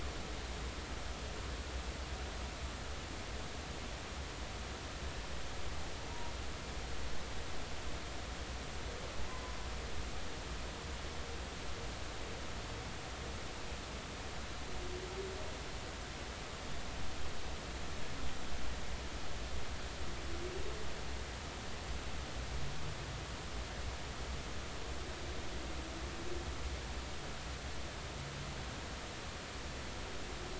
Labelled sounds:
9.3	9.5	humpback whale, 0.96 to 1.1 kHz

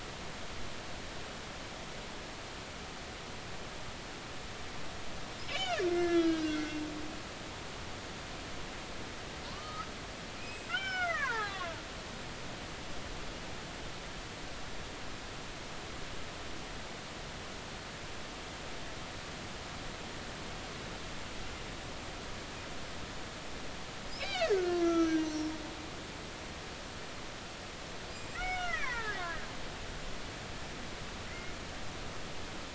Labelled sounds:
5.4	6.8	killer whale, Bigg's (transient), 1.3 to 3.1 kHz
9.5	12.7	killer whale, Bigg's (transient), 0.80 to 3.2 kHz
24.2	25.5	killer whale, Bigg's (transient), 1.2 to 6.1 kHz
28.3	29.4	killer whale, Bigg's (transient), 0.83 to 2.6 kHz
31.3	31.5	killer whale, Bigg's (transient), 2.0 to 2.2 kHz

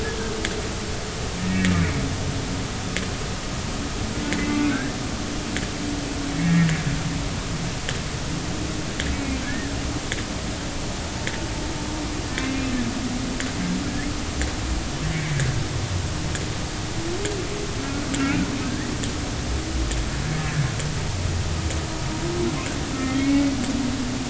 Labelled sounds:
1.4	1.7	humpback whale, 1.8 to 1.9 kHz
4.3	5.0	humpback whale, 1.3 to 2.2 kHz
6.4	6.8	humpback whale, 1.7 to 2.2 kHz
9.1	9.7	humpback whale, 1.5 to 2.3 kHz
12.4	12.6	humpback whale, 1.9 to 2.2 kHz
15.1	15.4	humpback whale, 2.0 to 2.3 kHz
18.6	18.9	humpback whale, 1.5 to 2.0 kHz
20.4	20.6	humpback whale, 1.6 to 1.8 kHz
22.9	23.5	humpback whale, 1.2 to 2.3 kHz

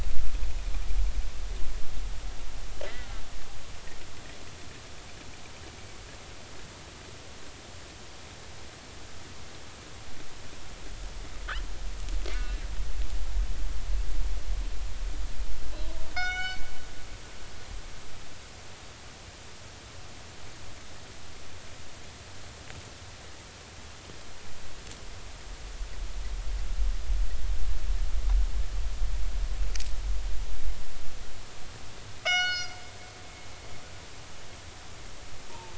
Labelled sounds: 2.8	3.2	killer whale, northern resident, G clan, call N41, 1.2 to 2.1 kHz
12.3	12.6	killer whale, northern resident, G clan, call N41, 2.6 to 2.8 kHz
16.1	16.6	killer whale, northern resident, G clan, call N24ii, 1.2 to 7.5 kHz
32.2	32.8	killer whale, northern resident, G clan, call N24ii, 1.3 to 6.7 kHz
35.5	35.7	killer whale, northern resident, G clan, call N24ii, 0.83 to 1.1 kHz

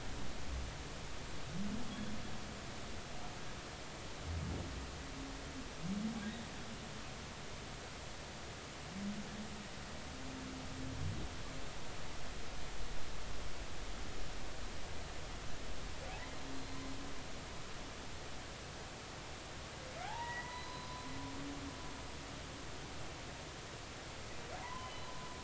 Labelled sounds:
1.9	2.1	humpback whale, 3.3 to 3.4 kHz
20.0	20.9	humpback whale, 0.80 to 4.1 kHz
24.6	25.1	humpback whale, 0.90 to 3.1 kHz

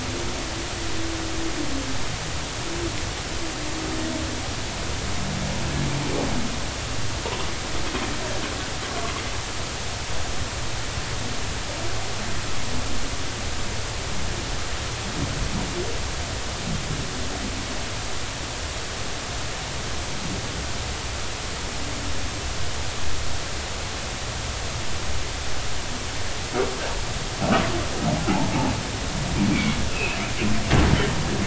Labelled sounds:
29.5	30.2	humpback whale, 2.1 to 2.8 kHz

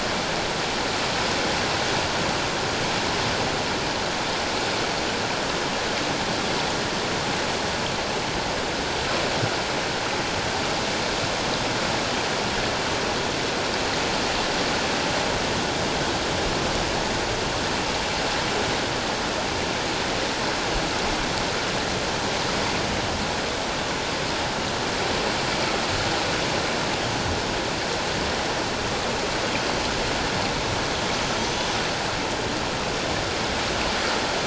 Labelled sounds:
31.4	31.6	killer whale, 5.9 to 6.4 kHz

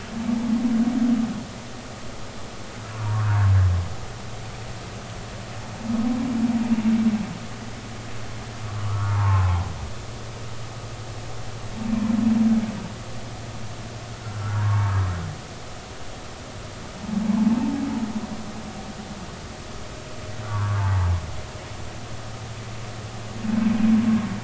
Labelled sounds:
3.1	3.5	humpback whale, 0.90 to 1.7 kHz
8.8	9.7	humpback whale, 0.80 to 1.5 kHz
14.2	15.0	humpback whale, 0.86 to 1.6 kHz
17.3	17.6	humpback whale, 0.83 to 1.1 kHz
20.5	21.1	humpback whale, 0.83 to 1.2 kHz

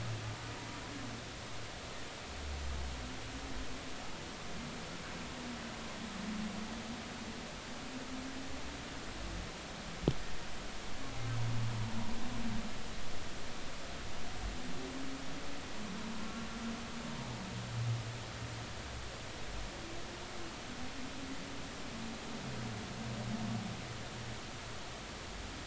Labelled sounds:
16.2	16.4	humpback whale, 0.93 to 1.1 kHz

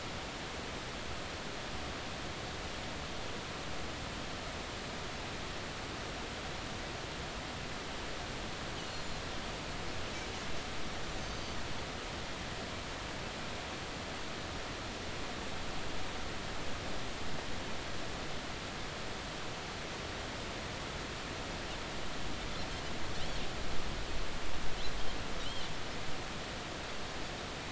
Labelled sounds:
11.2	11.6	Pacific white-sided dolphin, 6.0 to 6.3 kHz
25.4	25.7	Pacific white-sided dolphin, 2.8 to 3.3 kHz

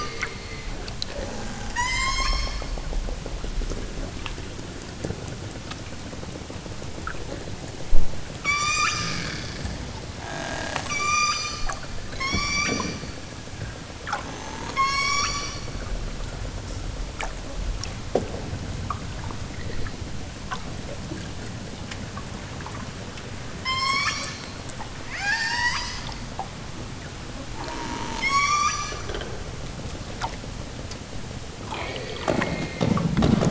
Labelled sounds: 1.6	2.5	killer whale, southern Alaska resident, 0.60 to 8.0 kHz
8.4	9.2	killer whale, southern Alaska resident, 0.92 to 8.0 kHz
10.9	11.7	killer whale, southern Alaska resident, 0.78 to 8.0 kHz
12.1	12.9	killer whale, southern Alaska resident, 0.83 to 8.0 kHz
14.7	15.5	killer whale, southern Alaska resident, 0.83 to 8.0 kHz
23.6	24.3	killer whale, southern Alaska resident, 0.69 to 8.0 kHz
25.0	26.0	killer whale, southern Alaska resident, 0.50 to 8.0 kHz
28.2	28.9	killer whale, southern Alaska resident, 0.78 to 8.0 kHz

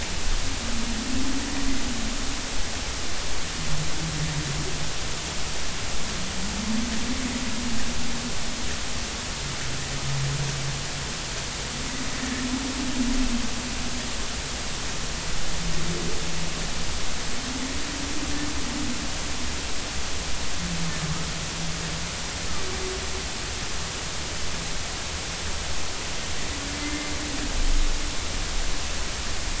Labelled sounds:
26.8	27.1	humpback whale, 2.0 to 2.1 kHz

